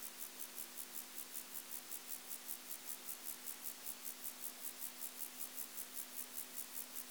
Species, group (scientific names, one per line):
Chorthippus vagans
Orthoptera